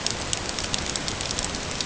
{"label": "ambient", "recorder": "HydroMoth"}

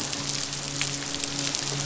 {"label": "biophony, midshipman", "recorder": "SoundTrap 500"}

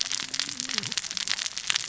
{"label": "biophony, cascading saw", "recorder": "SoundTrap 600 or HydroMoth"}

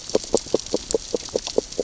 {"label": "biophony, grazing", "recorder": "SoundTrap 600 or HydroMoth"}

